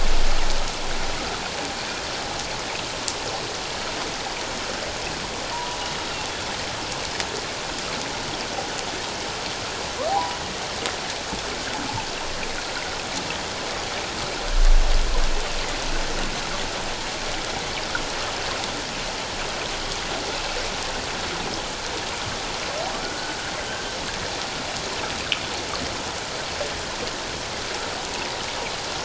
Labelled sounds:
5.5	5.8	humpback whale, 0.91 to 1.1 kHz
10.1	10.4	humpback whale, 0.78 to 1.1 kHz
23.0	23.8	humpback whale, 1.3 to 1.8 kHz

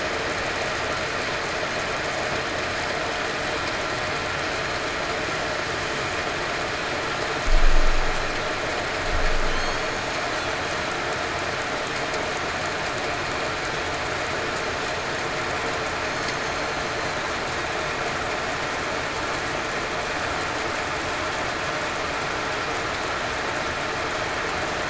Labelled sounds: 16.4	16.8	killer whale, southern resident, 4.1 to 4.3 kHz

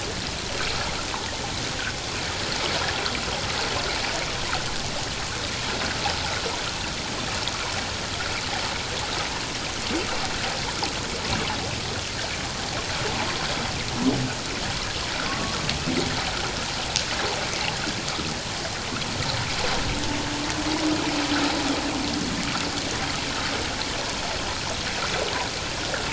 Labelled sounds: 15.3	15.6	humpback whale, 1.0 to 1.2 kHz

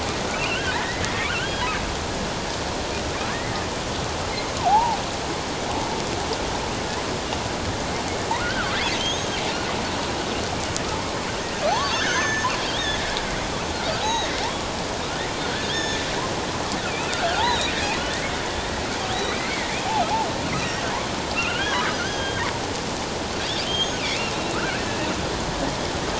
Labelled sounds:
0.3	1.7	killer whale, offshore, 1.6 to 3.3 kHz
3.3	3.5	killer whale, offshore, 1.6 to 2.2 kHz
4.6	5.0	killer whale, offshore, 0.78 to 1.1 kHz
8.4	9.4	killer whale, offshore, 1.1 to 6.6 kHz
11.7	12.5	killer whale, offshore, 0.78 to 6.5 kHz
14.0	14.3	killer whale, offshore, 0.78 to 6.5 kHz
15.7	16.0	killer whale, offshore, 1.6 to 6.6 kHz
16.9	17.7	killer whale, offshore, 0.78 to 6.8 kHz
19.4	19.7	killer whale, offshore, 1.8 to 2.3 kHz
20.5	20.8	killer whale, offshore, 1.8 to 2.2 kHz
21.3	22.4	killer whale, offshore, 0.94 to 6.3 kHz
23.6	24.0	killer whale, offshore, 3.0 to 6.7 kHz
24.5	24.8	killer whale, offshore, 1.2 to 1.7 kHz

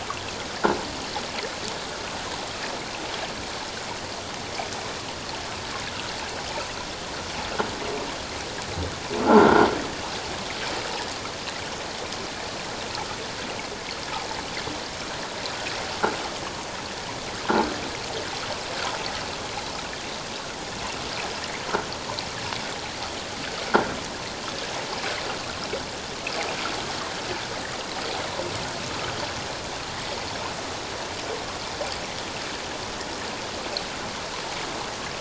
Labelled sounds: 9.2	9.7	croaking sound likely from a nearby submerged object, 1.3 to 1.6 kHz

